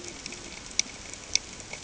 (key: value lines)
label: ambient
recorder: HydroMoth